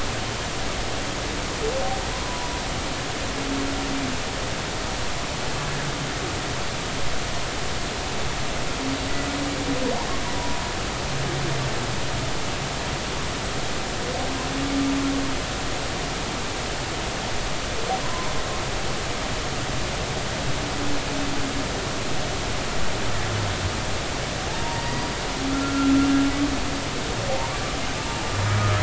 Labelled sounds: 2.2	2.5	humpback whale, 0.93 to 1.0 kHz
18.0	18.3	humpback whale, 0.93 to 1.1 kHz
24.4	25.9	humpback whale, 0.80 to 1.4 kHz
28.1	28.8	humpback whale, 0.80 to 1.3 kHz

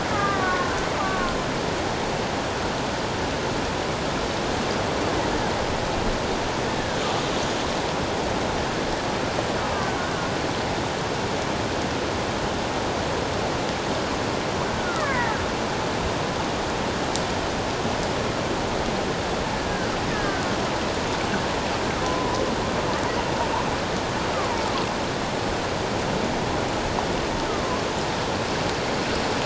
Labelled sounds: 0.1	1.4	killer whale, Bigg's (transient), 1.0 to 1.7 kHz
6.8	7.0	killer whale, Bigg's (transient), 1.5 to 1.8 kHz
14.8	15.4	killer whale, Bigg's (transient), 0.81 to 2.3 kHz
19.5	20.5	killer whale, Bigg's (transient), 1.5 to 1.8 kHz
22.0	22.4	killer whale, Bigg's (transient), 0.91 to 1.1 kHz
24.3	24.6	killer whale, Bigg's (transient), 0.88 to 1.3 kHz
27.5	27.8	killer whale, Bigg's (transient), 0.97 to 1.3 kHz

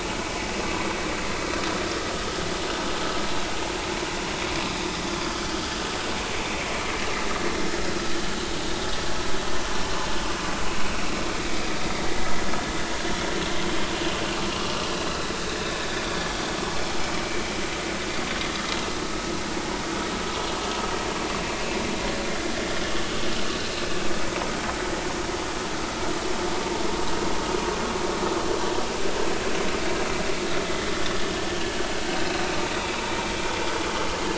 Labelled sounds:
11.8	12.3	vessel noise, 1.8 to 2.2 kHz
14.5	14.8	vessel noise, 2.8 to 3.0 kHz

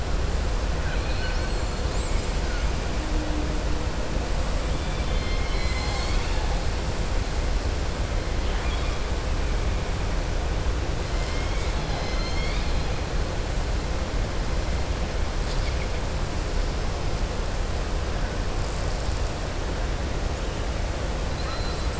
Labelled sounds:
0.7	1.6	killer whale, southern resident, 1.4 to 5.7 kHz
8.6	8.9	killer whale, southern resident, 1.2 to 3.9 kHz
11.2	12.9	killer whale, southern resident, 0.84 to 6.4 kHz
21.2	21.9	killer whale, southern resident, 4.0 to 5.4 kHz

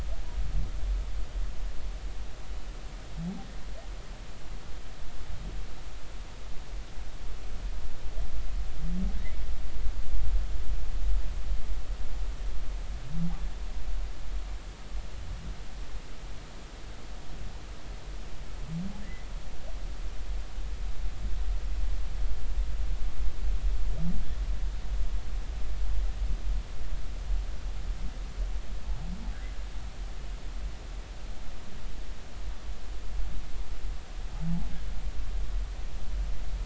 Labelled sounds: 19.0	19.3	humpback whale, 1.6 to 2.1 kHz

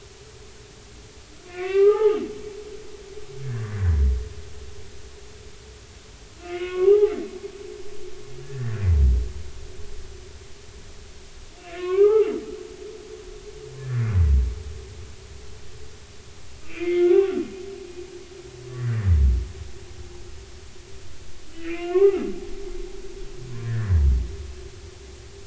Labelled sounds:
1.5	2.2	humpback whale, 0.80 to 2.8 kHz
3.4	3.8	humpback whale, 1.5 to 1.9 kHz
6.4	7.1	humpback whale, 0.80 to 2.9 kHz
8.4	8.8	humpback whale, 1.6 to 2.0 kHz
11.6	12.3	humpback whale, 0.80 to 3.1 kHz
16.6	17.5	humpback whale, 1.1 to 2.8 kHz
21.5	22.3	humpback whale, 0.80 to 2.9 kHz
23.6	23.9	humpback whale, 1.4 to 1.9 kHz

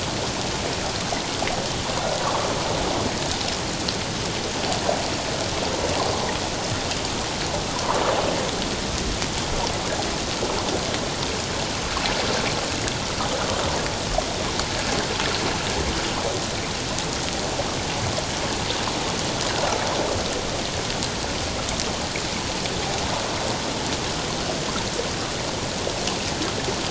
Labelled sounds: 7.7	8.0	water noise, 0.91 to 1.3 kHz

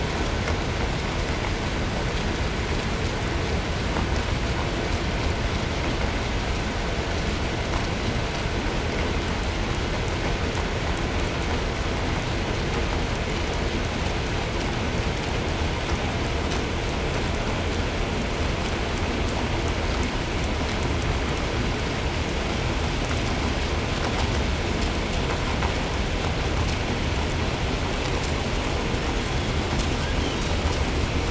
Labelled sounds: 29.9	30.6	killer whale, southern resident, 0.99 to 7.0 kHz

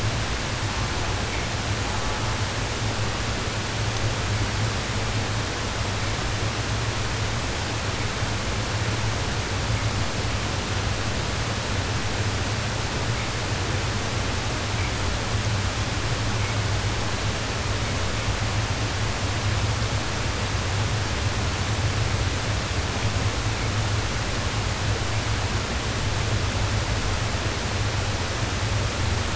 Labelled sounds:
0.5	1.2	killer whale, southern resident, 0.43 to 1.7 kHz
1.8	2.5	killer whale, southern resident, 0.42 to 1.5 kHz

